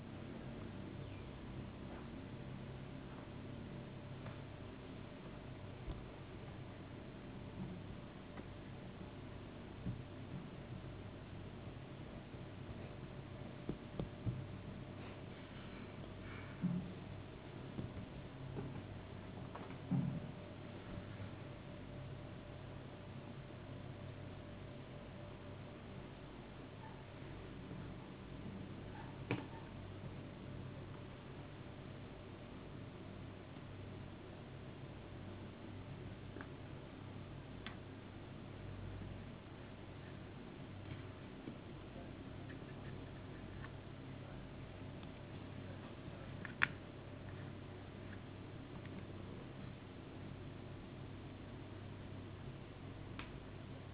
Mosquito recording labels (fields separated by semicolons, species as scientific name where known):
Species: no mosquito; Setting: insect culture